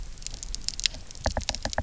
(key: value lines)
label: biophony, knock
recorder: SoundTrap 300